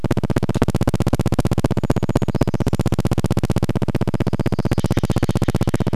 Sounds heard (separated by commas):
Steller's Jay call, Brown Creeper song, Brown Creeper call, recorder noise